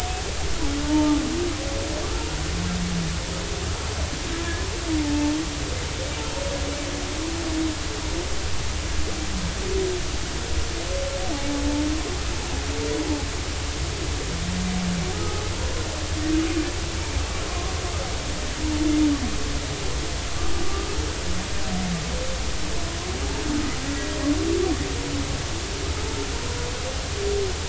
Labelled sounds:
6.0	6.3	humpback whale, 0.83 to 0.96 kHz
15.1	15.4	humpback whale, 1.2 to 1.3 kHz
20.6	20.9	humpback whale, 1.1 to 1.2 kHz

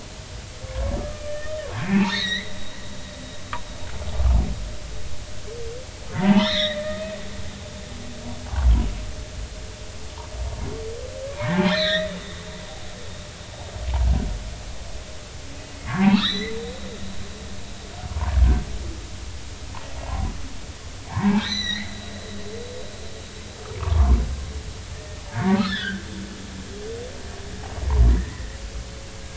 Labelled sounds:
1.0	2.6	humpback whale, 0.80 to 4.5 kHz
6.2	6.8	humpback whale, 0.80 to 4.3 kHz
11.4	12.2	humpback whale, 0.80 to 4.4 kHz
15.9	16.5	humpback whale, 0.80 to 4.1 kHz
18.1	18.3	humpback whale, 0.86 to 1.2 kHz
20.0	20.3	humpback whale, 0.80 to 1.1 kHz
21.1	21.9	humpback whale, 0.80 to 6.1 kHz
23.8	24.2	humpback whale, 0.90 to 1.3 kHz
25.3	26.0	humpback whale, 0.80 to 3.9 kHz
28.1	28.5	humpback whale, 1.7 to 2.0 kHz

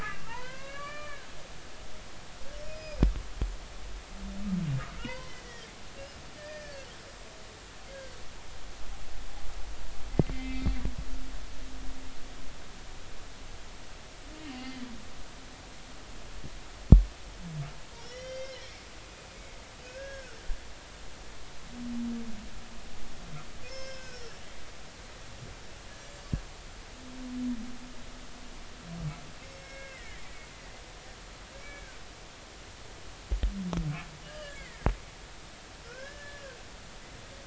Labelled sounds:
0.0	1.2	humpback whale, 0.86 to 3.0 kHz
2.7	3.0	humpback whale, 2.4 to 5.1 kHz
5.0	5.7	humpback whale, 0.90 to 4.2 kHz
6.3	6.9	humpback whale, 1.6 to 1.9 kHz
10.3	10.7	humpback whale, 2.0 to 2.4 kHz
14.6	14.9	humpback whale, 1.9 to 2.1 kHz
18.0	18.7	humpback whale, 1.8 to 5.9 kHz
19.8	20.4	humpback whale, 1.3 to 1.7 kHz
23.6	24.4	humpback whale, 1.4 to 5.9 kHz
26.1	26.4	humpback whale, 4.3 to 4.6 kHz
29.4	30.2	humpback whale, 1.5 to 5.5 kHz
31.6	32.0	humpback whale, 1.4 to 2.4 kHz
34.2	34.8	humpback whale, 1.5 to 2.3 kHz
35.8	36.6	humpback whale, 1.3 to 1.8 kHz

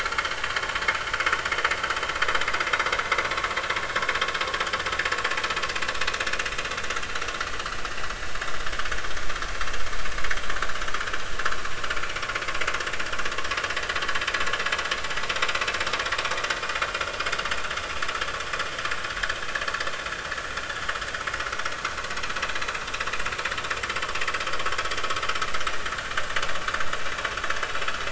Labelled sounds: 7.5	7.8	vessel noise, 2.8 to 3.0 kHz

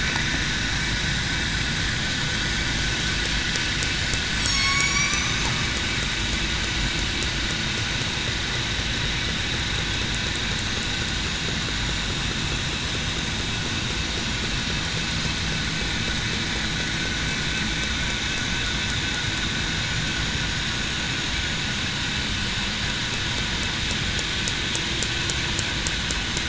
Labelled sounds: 4.4	5.2	killer whale, southern resident, 1.1 to 3.4 kHz

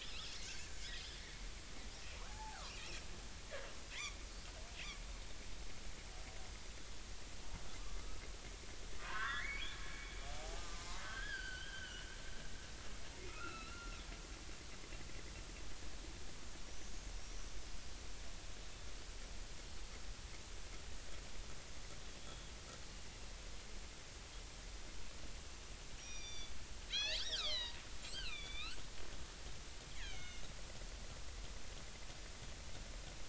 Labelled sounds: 0.9	1.2	killer whale, northern resident, 3.0 to 3.4 kHz
2.3	3.0	killer whale, northern resident, 0.80 to 2.9 kHz
9.0	12.0	killer whale, northern resident, 0.80 to 4.6 kHz
12.3	13.9	killer whale, northern resident, 2.4 to 4.9 kHz
14.3	15.0	killer whale, northern resident, 1.2 to 1.5 kHz
17.2	17.4	killer whale, northern resident, 5.4 to 6.1 kHz
22.2	22.4	killer whale, northern resident, 3.2 to 3.5 kHz
26.0	28.8	killer whale, northern resident, 1.1 to 8.0 kHz
30.0	30.4	killer whale, northern resident, 2.1 to 6.7 kHz

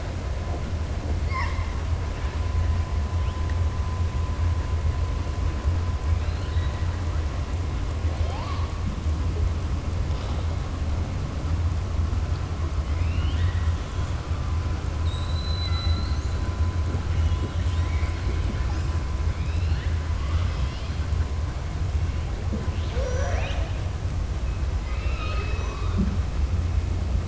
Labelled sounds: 6.1	6.8	killer whale, southern resident, 1.4 to 4.4 kHz
12.8	14.0	killer whale, southern resident, 1.4 to 4.3 kHz
14.9	16.4	killer whale, southern resident, 1.3 to 8.0 kHz

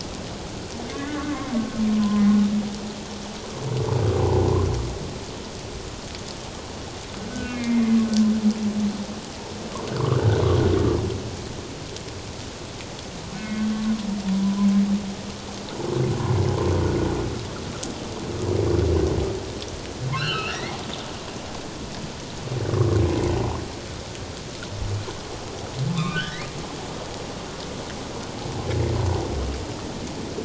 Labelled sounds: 0.9	1.5	humpback whale, 1.0 to 2.2 kHz
1.9	2.2	humpback whale, 0.97 to 1.1 kHz
7.3	7.9	humpback whale, 1.4 to 2.6 kHz
13.3	13.7	humpback whale, 1.4 to 2.2 kHz
14.4	14.7	humpback whale, 0.97 to 1.1 kHz
20.2	20.8	humpback whale, 1.2 to 4.5 kHz
25.9	26.5	humpback whale, 1.0 to 2.6 kHz

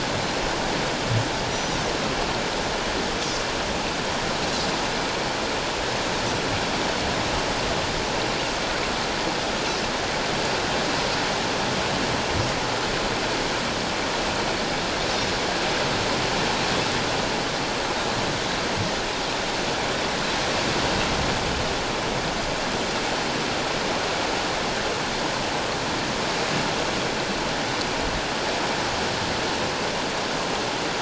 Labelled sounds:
1.5	1.8	Pacific white-sided dolphin, 5.6 to 6.0 kHz

